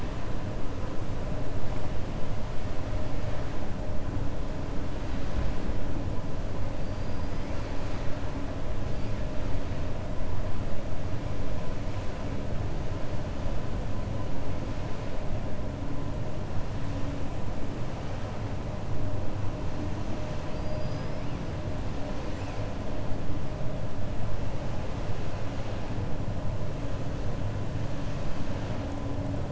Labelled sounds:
20.2	21.2	killer whale, 4.0 to 6.3 kHz

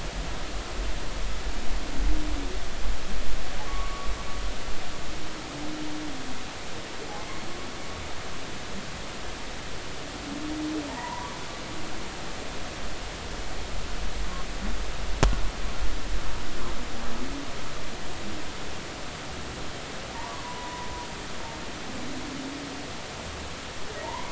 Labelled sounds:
3.7	4.1	humpback whale, 1.1 to 1.2 kHz
10.9	11.3	humpback whale, 0.83 to 1.1 kHz
20.4	20.9	humpback whale, 0.90 to 1.0 kHz
24.0	24.3	humpback whale, 0.86 to 1.1 kHz

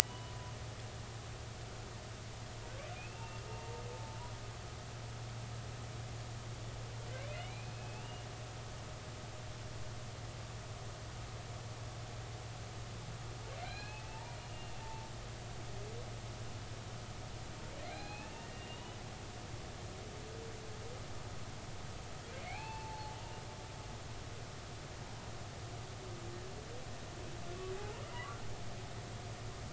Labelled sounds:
0.1	0.5	humpback whale, 0.96 to 1.1 kHz
1.0	1.3	humpback whale, 2.8 to 3.0 kHz
3.0	4.2	humpback whale, 0.83 to 2.8 kHz
7.3	8.2	humpback whale, 2.0 to 2.9 kHz
13.6	15.1	humpback whale, 0.83 to 4.3 kHz
17.8	19.0	humpback whale, 0.80 to 4.2 kHz
22.4	23.2	humpback whale, 0.80 to 4.4 kHz
27.7	28.4	humpback whale, 0.80 to 1.2 kHz

